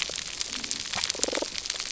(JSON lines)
{"label": "biophony", "recorder": "SoundTrap 300"}